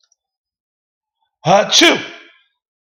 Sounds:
Sneeze